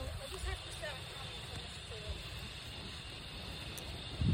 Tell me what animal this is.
Henicopsaltria eydouxii, a cicada